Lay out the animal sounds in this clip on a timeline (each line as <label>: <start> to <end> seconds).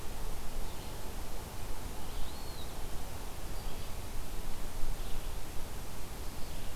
Red-eyed Vireo (Vireo olivaceus): 0.0 to 6.8 seconds
Eastern Wood-Pewee (Contopus virens): 2.1 to 2.8 seconds